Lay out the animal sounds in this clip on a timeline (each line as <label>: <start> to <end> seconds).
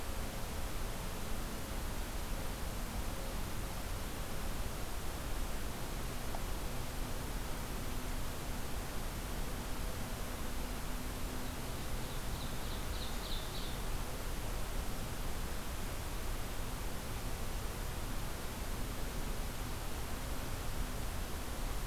Ovenbird (Seiurus aurocapilla): 11.9 to 14.0 seconds